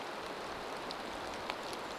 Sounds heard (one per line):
rain
Brown Creeper call